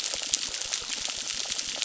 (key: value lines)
label: biophony, crackle
recorder: SoundTrap 600